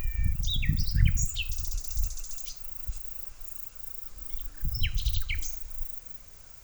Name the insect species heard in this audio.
Bicolorana bicolor